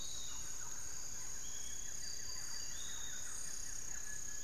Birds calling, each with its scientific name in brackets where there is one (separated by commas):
Cinereous Tinamou (Crypturellus cinereus), Thrush-like Wren (Campylorhynchus turdinus), Buff-throated Woodcreeper (Xiphorhynchus guttatus), Piratic Flycatcher (Legatus leucophaius)